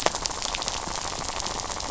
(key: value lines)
label: biophony, rattle
recorder: SoundTrap 500